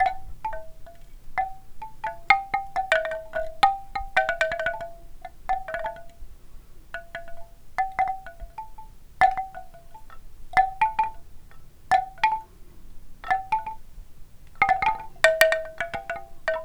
is there only one instrument making a sound?
yes